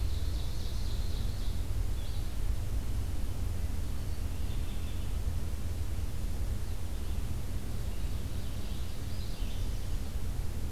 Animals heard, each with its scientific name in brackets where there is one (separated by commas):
Ovenbird (Seiurus aurocapilla), American Redstart (Setophaga ruticilla), Red-eyed Vireo (Vireo olivaceus)